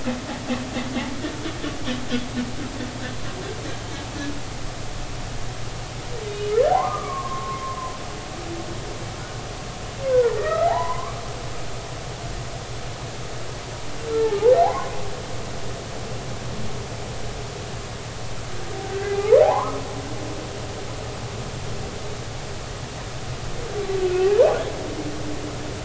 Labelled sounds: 6.3	7.6	humpback whale, 0.80 to 2.6 kHz
10.1	11.2	humpback whale, 0.80 to 2.1 kHz
14.1	14.9	humpback whale, 0.80 to 1.8 kHz
18.9	19.8	humpback whale, 0.80 to 1.7 kHz
24.0	24.3	humpback whale, 2.5 to 2.8 kHz

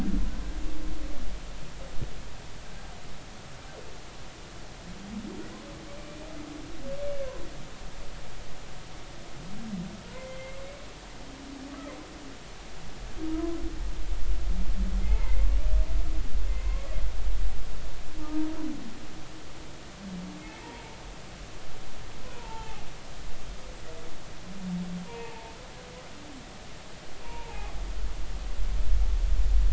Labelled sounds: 6.0	6.3	humpback whale, 2.3 to 2.5 kHz
10.1	10.6	humpback whale, 2.0 to 2.2 kHz
15.0	15.4	humpback whale, 0.83 to 2.3 kHz
16.5	16.8	humpback whale, 2.0 to 2.2 kHz
18.2	18.5	humpback whale, 0.86 to 0.99 kHz
20.4	20.6	humpback whale, 2.1 to 2.2 kHz
22.3	22.8	humpback whale, 0.80 to 0.99 kHz
25.0	25.6	humpback whale, 0.80 to 1.0 kHz
27.2	27.8	humpback whale, 0.80 to 1.1 kHz

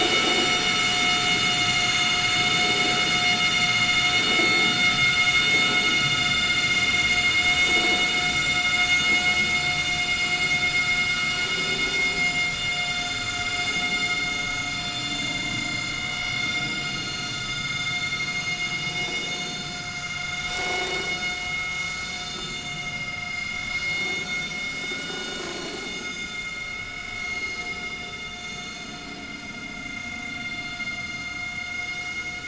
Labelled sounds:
0.5	0.7	vessel noise, 5.7 to 5.8 kHz
1.6	2.0	vessel noise, 4.2 to 6.5 kHz
6.2	6.8	vessel noise, 3.5 to 5.0 kHz
12.2	12.5	vessel noise, 7.0 to 7.2 kHz
14.8	17.3	vessel noise, 2.0 to 6.6 kHz
18.8	19.3	vessel noise, 5.0 to 5.8 kHz
19.8	22.0	vessel noise, 2.2 to 7.2 kHz
22.5	23.5	vessel noise, 2.0 to 6.5 kHz
25.0	27.8	vessel noise, 1.2 to 7.9 kHz
28.2	28.6	vessel noise, 6.4 to 7.2 kHz
30.9	31.2	vessel noise, 6.3 to 6.4 kHz

